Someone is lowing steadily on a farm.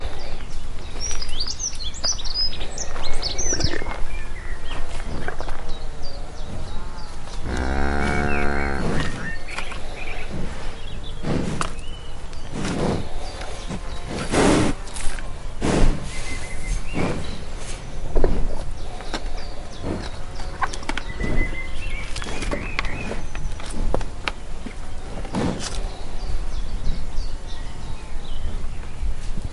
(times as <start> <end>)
9.7 29.5